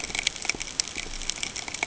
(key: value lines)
label: ambient
recorder: HydroMoth